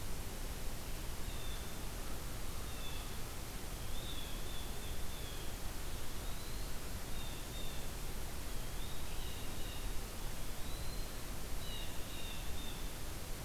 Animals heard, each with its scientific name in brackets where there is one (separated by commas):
Eastern Wood-Pewee (Contopus virens), Blue Jay (Cyanocitta cristata)